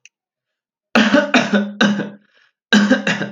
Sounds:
Cough